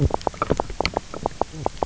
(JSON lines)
{"label": "biophony, knock croak", "recorder": "SoundTrap 300"}